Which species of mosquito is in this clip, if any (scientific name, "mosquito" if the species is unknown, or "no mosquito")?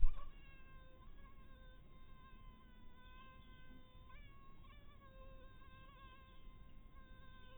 mosquito